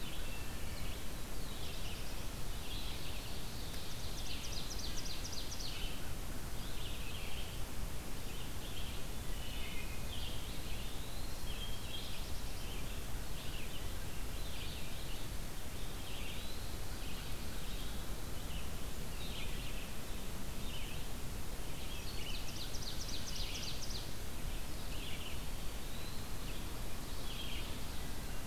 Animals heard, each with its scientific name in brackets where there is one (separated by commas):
American Crow (Corvus brachyrhynchos), Black-throated Blue Warbler (Setophaga caerulescens), Red-eyed Vireo (Vireo olivaceus), Ovenbird (Seiurus aurocapilla), Wood Thrush (Hylocichla mustelina), Eastern Wood-Pewee (Contopus virens)